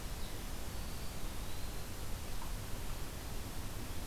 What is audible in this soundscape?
Eastern Wood-Pewee